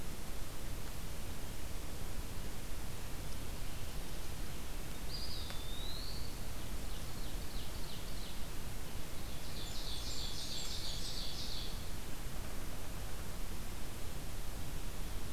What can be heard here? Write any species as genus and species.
Contopus virens, Seiurus aurocapilla, Setophaga fusca